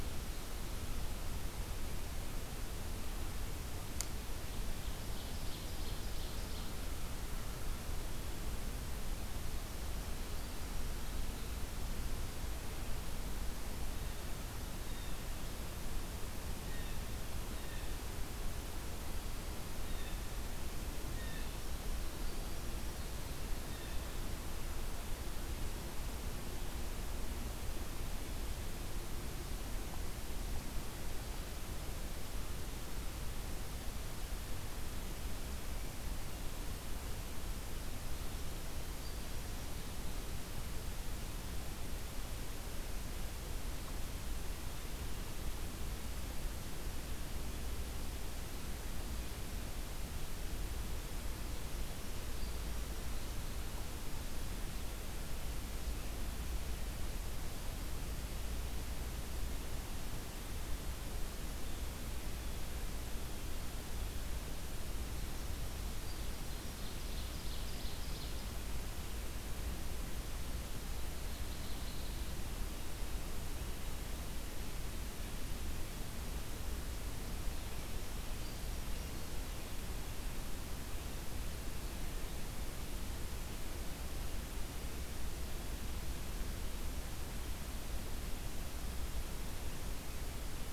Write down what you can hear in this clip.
Ovenbird, Blue Jay, Hermit Thrush